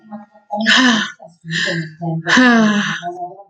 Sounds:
Sigh